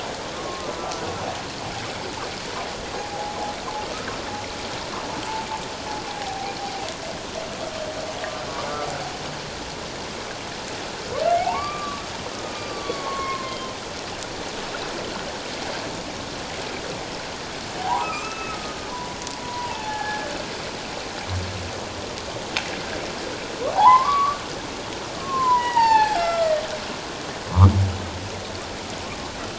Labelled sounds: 0.3	0.7	humpback whale, 1.0 to 1.2 kHz
3.1	3.4	humpback whale, 0.78 to 0.91 kHz
6.2	6.5	humpback whale, 0.78 to 0.84 kHz
11.4	12.0	humpback whale, 0.78 to 2.4 kHz
12.5	13.7	humpback whale, 0.84 to 4.8 kHz
17.8	20.3	humpback whale, 0.78 to 2.7 kHz
23.7	24.4	humpback whale, 0.78 to 1.3 kHz
25.2	26.6	humpback whale, 0.78 to 7.5 kHz

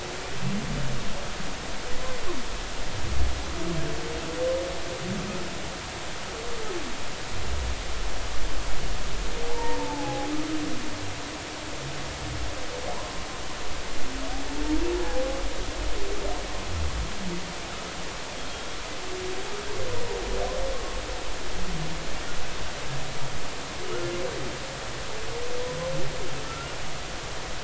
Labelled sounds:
9.5	10.3	humpback whale, 0.80 to 1.0 kHz
12.9	13.1	humpback whale, 0.80 to 1.1 kHz
14.9	15.2	humpback whale, 1.5 to 1.8 kHz

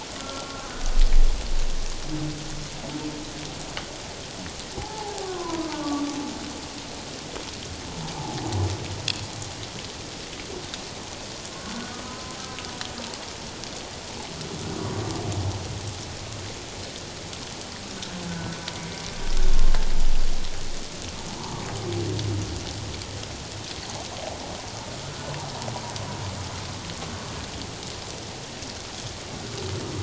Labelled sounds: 0.2	0.7	humpback whale, 1.0 to 1.4 kHz
4.8	6.0	humpback whale, 0.78 to 1.3 kHz
8.2	8.4	humpback whale, 0.78 to 0.94 kHz
11.9	12.4	humpback whale, 0.97 to 1.3 kHz
18.3	19.0	humpback whale, 1.4 to 2.2 kHz
19.5	19.8	humpback whale, 1.0 to 1.1 kHz

